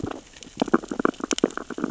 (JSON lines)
{"label": "biophony, sea urchins (Echinidae)", "recorder": "SoundTrap 600 or HydroMoth"}